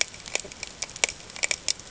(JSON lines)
{"label": "ambient", "recorder": "HydroMoth"}